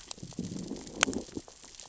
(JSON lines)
{"label": "biophony, growl", "recorder": "SoundTrap 600 or HydroMoth"}